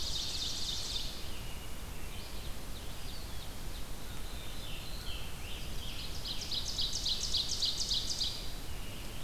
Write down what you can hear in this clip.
Ovenbird, Red-eyed Vireo, Black-throated Blue Warbler, Scarlet Tanager